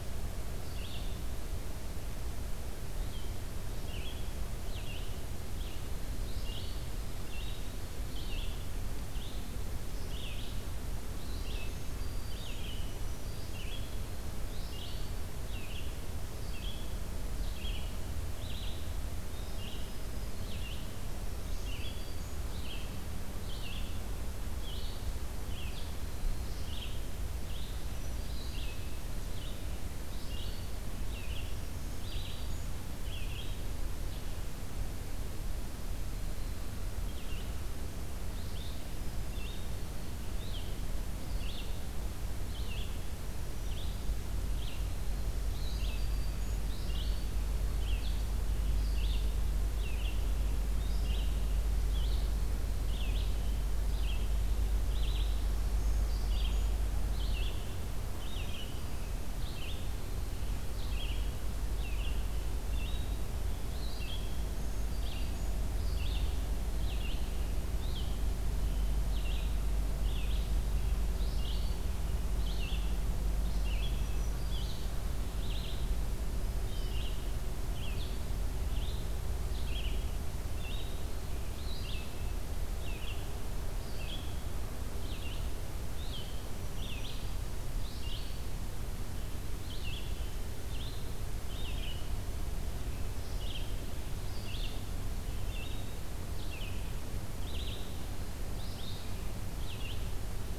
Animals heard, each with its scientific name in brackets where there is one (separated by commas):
Red-eyed Vireo (Vireo olivaceus), Black-throated Green Warbler (Setophaga virens)